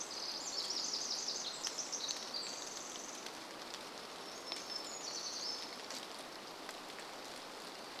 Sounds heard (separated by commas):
rain, Pacific Wren song, warbler song